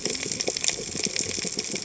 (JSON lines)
{"label": "biophony, cascading saw", "recorder": "HydroMoth"}